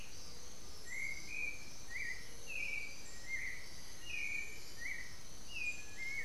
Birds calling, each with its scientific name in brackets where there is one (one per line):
Black-faced Antthrush (Formicarius analis)
Undulated Tinamou (Crypturellus undulatus)
Black-billed Thrush (Turdus ignobilis)